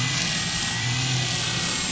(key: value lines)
label: anthrophony, boat engine
recorder: SoundTrap 500